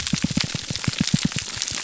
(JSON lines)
{"label": "biophony, pulse", "recorder": "SoundTrap 300"}